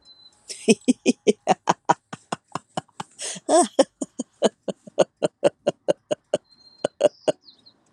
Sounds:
Laughter